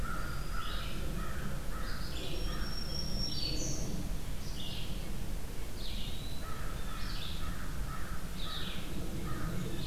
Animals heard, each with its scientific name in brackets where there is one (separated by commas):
Red-eyed Vireo (Vireo olivaceus), Red-breasted Nuthatch (Sitta canadensis), American Crow (Corvus brachyrhynchos), Black-throated Green Warbler (Setophaga virens), Eastern Wood-Pewee (Contopus virens)